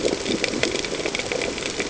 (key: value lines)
label: ambient
recorder: HydroMoth